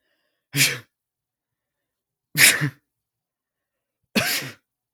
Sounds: Sneeze